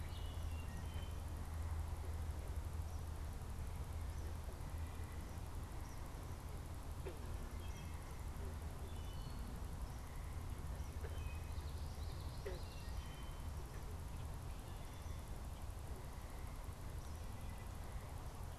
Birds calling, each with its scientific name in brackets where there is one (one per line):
Common Yellowthroat (Geothlypis trichas)
Wood Thrush (Hylocichla mustelina)